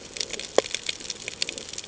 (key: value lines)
label: ambient
recorder: HydroMoth